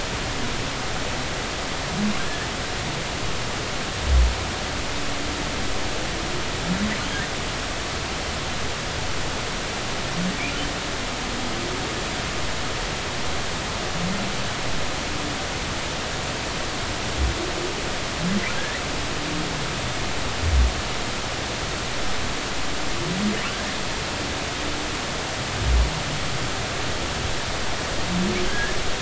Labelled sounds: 18.6	18.8	humpback whale, 1.5 to 2.1 kHz
28.5	28.8	humpback whale, 1.5 to 1.8 kHz

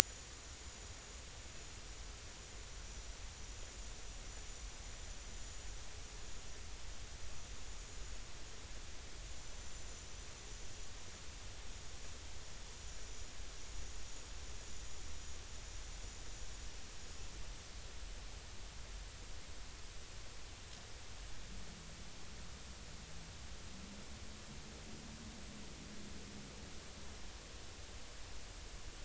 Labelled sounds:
0.0	0.3	vessel noise, 6.8 to 7.1 kHz
9.3	10.0	vessel noise, 7.0 to 7.3 kHz

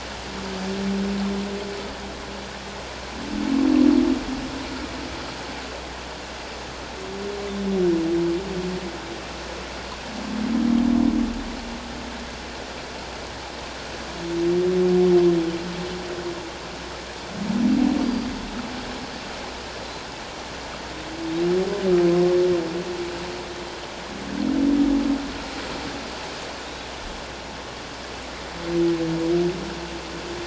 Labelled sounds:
18.0	18.3	humpback whale, 4.7 to 4.9 kHz
26.6	26.9	humpback whale, 3.6 to 3.9 kHz

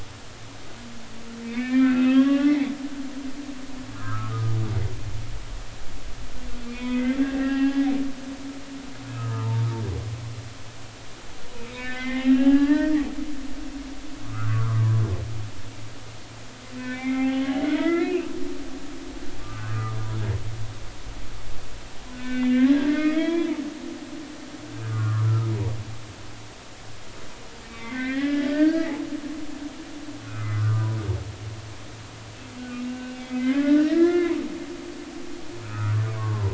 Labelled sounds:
1.4	2.7	humpback whale, 1.0 to 3.4 kHz
3.9	4.6	humpback whale, 1.0 to 1.4 kHz
6.7	8.8	humpback whale, 0.80 to 3.6 kHz
9.1	9.7	humpback whale, 0.86 to 1.4 kHz
11.7	12.9	humpback whale, 0.80 to 3.8 kHz
14.3	14.9	humpback whale, 0.96 to 1.6 kHz
16.8	17.4	humpback whale, 0.80 to 2.6 kHz
17.7	18.3	humpback whale, 1.2 to 3.5 kHz
19.4	20.0	humpback whale, 1.1 to 1.6 kHz
22.1	23.5	humpback whale, 0.96 to 4.1 kHz
24.9	25.5	humpback whale, 1.0 to 1.5 kHz
27.7	28.9	humpback whale, 1.1 to 3.5 kHz
30.2	31.0	humpback whale, 0.93 to 1.5 kHz
32.9	34.4	humpback whale, 0.93 to 3.2 kHz
35.6	36.5	humpback whale, 0.90 to 1.5 kHz

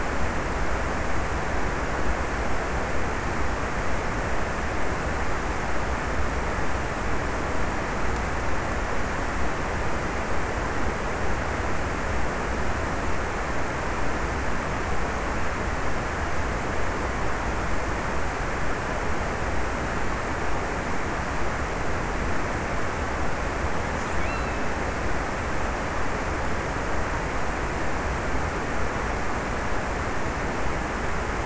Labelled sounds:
23.4	25.6	killer whale, offshore, 1.4 to 3.0 kHz

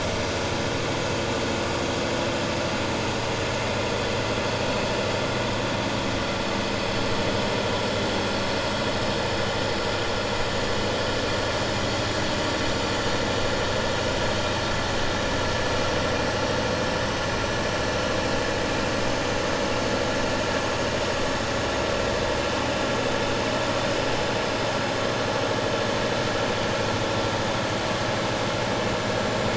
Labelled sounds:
1.0	1.3	vessel noise, 2.5 to 2.7 kHz

